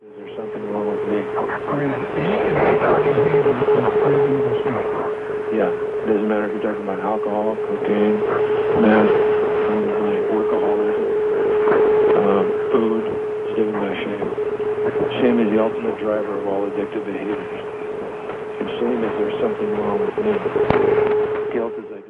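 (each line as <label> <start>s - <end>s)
Men are speaking on a microphone over a radio signal with beeping sounds of an instrument in the background. 0.0s - 5.4s
A man speaks into a radio microphone. 5.5s - 6.0s
Men talking over a radio signal with beeping sounds. 6.1s - 17.2s
Men speaking on a microphone over a radio signal with a beeping sound that increases. 18.7s - 22.1s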